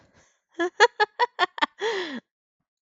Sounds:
Laughter